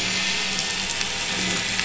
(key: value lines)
label: anthrophony, boat engine
recorder: SoundTrap 500